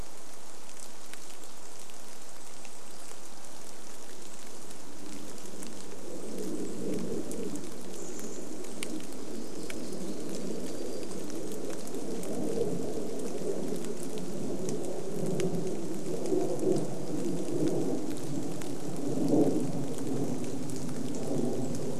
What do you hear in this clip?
rain, warbler song, airplane, Golden-crowned Kinglet song, Chestnut-backed Chickadee call